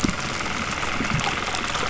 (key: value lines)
label: anthrophony, boat engine
recorder: SoundTrap 300